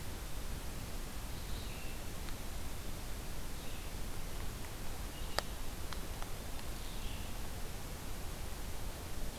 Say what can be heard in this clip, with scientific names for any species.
Vireo olivaceus